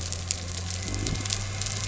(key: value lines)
label: anthrophony, boat engine
recorder: SoundTrap 300